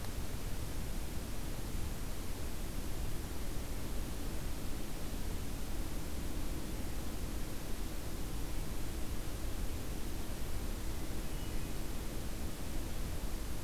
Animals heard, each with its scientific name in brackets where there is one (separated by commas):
Hermit Thrush (Catharus guttatus)